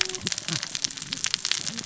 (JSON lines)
{"label": "biophony, cascading saw", "recorder": "SoundTrap 600 or HydroMoth"}